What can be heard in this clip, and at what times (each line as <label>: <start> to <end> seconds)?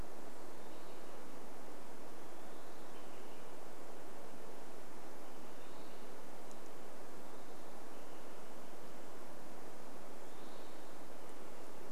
Olive-sided Flycatcher call: 0 to 6 seconds
Western Wood-Pewee song: 0 to 8 seconds
Olive-sided Flycatcher call: 8 to 12 seconds
Western Wood-Pewee song: 10 to 12 seconds